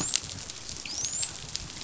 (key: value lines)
label: biophony, dolphin
recorder: SoundTrap 500